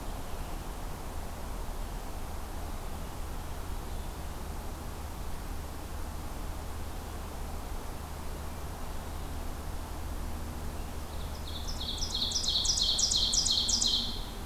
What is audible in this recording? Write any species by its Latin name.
Seiurus aurocapilla